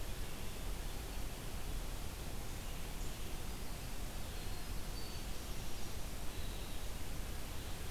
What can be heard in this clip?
Winter Wren